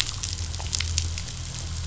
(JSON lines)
{"label": "anthrophony, boat engine", "recorder": "SoundTrap 500"}